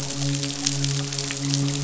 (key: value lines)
label: biophony, midshipman
recorder: SoundTrap 500